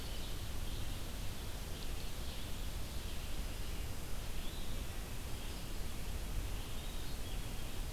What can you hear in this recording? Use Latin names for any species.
Vireo olivaceus